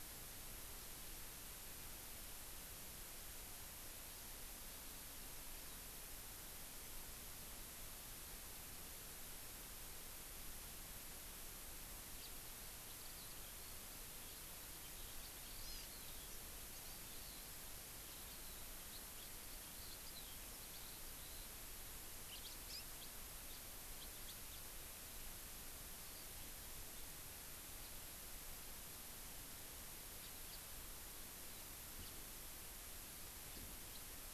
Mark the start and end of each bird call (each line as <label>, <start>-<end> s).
Eurasian Skylark (Alauda arvensis), 12.2-21.6 s
Hawaii Amakihi (Chlorodrepanis virens), 15.7-15.9 s
House Finch (Haemorhous mexicanus), 22.3-23.1 s
House Finch (Haemorhous mexicanus), 23.5-23.7 s
House Finch (Haemorhous mexicanus), 24.0-24.7 s
Hawaii Amakihi (Chlorodrepanis virens), 26.0-26.3 s
House Finch (Haemorhous mexicanus), 30.2-30.6 s
House Finch (Haemorhous mexicanus), 32.0-32.2 s
House Finch (Haemorhous mexicanus), 33.5-34.0 s